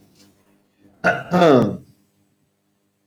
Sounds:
Throat clearing